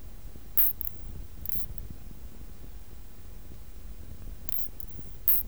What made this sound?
Isophya tosevski, an orthopteran